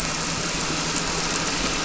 {"label": "anthrophony, boat engine", "recorder": "SoundTrap 300"}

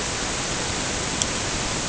{"label": "ambient", "recorder": "HydroMoth"}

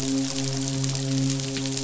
{"label": "biophony, midshipman", "recorder": "SoundTrap 500"}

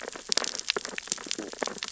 {"label": "biophony, sea urchins (Echinidae)", "recorder": "SoundTrap 600 or HydroMoth"}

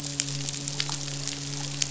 {"label": "biophony, midshipman", "recorder": "SoundTrap 500"}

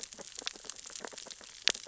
{"label": "biophony, sea urchins (Echinidae)", "recorder": "SoundTrap 600 or HydroMoth"}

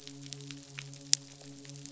{"label": "biophony, midshipman", "recorder": "SoundTrap 500"}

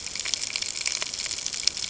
{"label": "ambient", "recorder": "HydroMoth"}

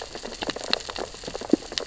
{"label": "biophony, sea urchins (Echinidae)", "recorder": "SoundTrap 600 or HydroMoth"}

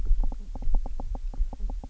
{"label": "biophony, knock croak", "recorder": "SoundTrap 300"}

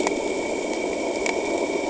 {"label": "anthrophony, boat engine", "recorder": "HydroMoth"}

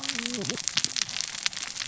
{"label": "biophony, cascading saw", "recorder": "SoundTrap 600 or HydroMoth"}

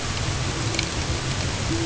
{"label": "ambient", "recorder": "HydroMoth"}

